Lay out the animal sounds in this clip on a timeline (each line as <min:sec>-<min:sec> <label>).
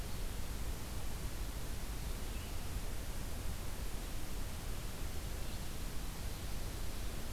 0:00.0-0:07.3 Blue-headed Vireo (Vireo solitarius)